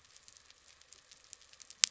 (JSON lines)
{"label": "anthrophony, boat engine", "recorder": "SoundTrap 300"}